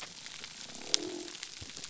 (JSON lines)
{"label": "biophony", "recorder": "SoundTrap 300"}